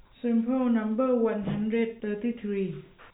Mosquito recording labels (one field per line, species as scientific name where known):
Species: no mosquito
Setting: cup